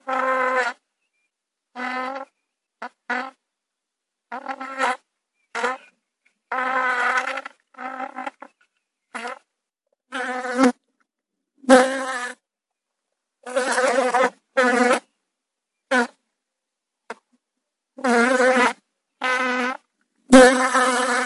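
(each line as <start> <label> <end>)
0.1 A bee is buzzing. 0.8
1.7 A bee is buzzing. 3.3
4.3 A bee is buzzing. 5.8
6.5 A bee is buzzing. 8.5
9.1 A bee is buzzing. 9.4
10.1 A bee is buzzing. 10.8
11.7 A bee is buzzing. 12.4
13.5 A bee is buzzing. 15.0
15.9 A bee is buzzing. 16.1
17.1 A bee is buzzing. 17.2
18.0 A bee is buzzing. 21.3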